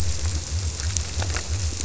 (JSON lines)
{"label": "biophony", "recorder": "SoundTrap 300"}